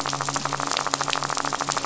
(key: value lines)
label: biophony, midshipman
recorder: SoundTrap 500